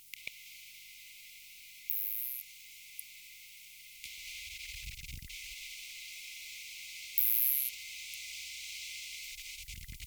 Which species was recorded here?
Isophya rhodopensis